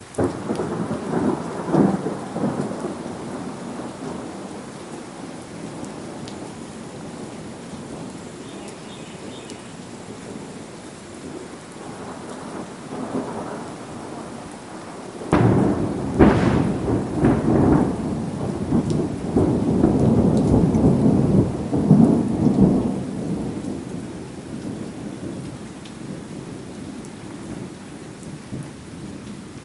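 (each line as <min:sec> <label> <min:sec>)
0:00.0 A loud thunder rumbles outside. 0:02.9
0:00.0 Rain dripping during a thunderstorm. 0:29.6
0:08.2 Birds twittering softly in the distance. 0:10.7
0:15.3 A loud thunder rumbles outside. 0:23.0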